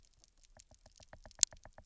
{"label": "biophony, knock", "recorder": "SoundTrap 300"}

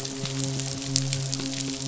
{"label": "biophony, midshipman", "recorder": "SoundTrap 500"}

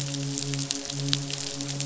{"label": "biophony, midshipman", "recorder": "SoundTrap 500"}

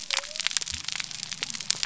{"label": "biophony", "recorder": "SoundTrap 300"}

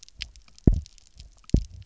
{"label": "biophony, double pulse", "recorder": "SoundTrap 300"}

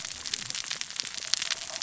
{"label": "biophony, cascading saw", "recorder": "SoundTrap 600 or HydroMoth"}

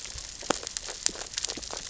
{"label": "biophony, grazing", "recorder": "SoundTrap 600 or HydroMoth"}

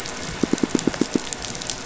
{"label": "biophony, pulse", "recorder": "SoundTrap 500"}
{"label": "anthrophony, boat engine", "recorder": "SoundTrap 500"}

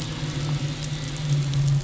{"label": "anthrophony, boat engine", "recorder": "SoundTrap 500"}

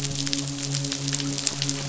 {"label": "biophony, midshipman", "recorder": "SoundTrap 500"}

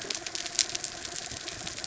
{"label": "anthrophony, mechanical", "recorder": "SoundTrap 300"}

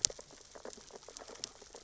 {"label": "biophony, sea urchins (Echinidae)", "recorder": "SoundTrap 600 or HydroMoth"}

